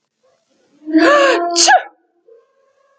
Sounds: Sneeze